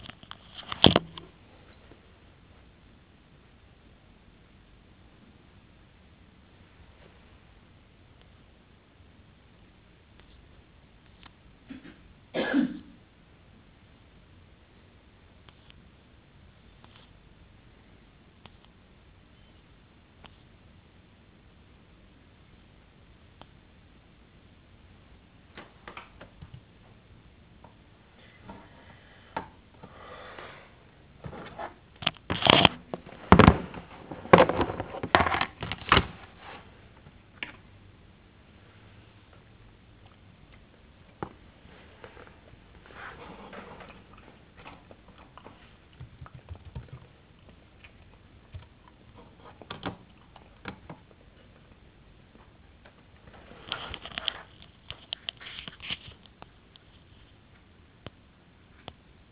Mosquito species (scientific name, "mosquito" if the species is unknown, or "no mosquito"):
no mosquito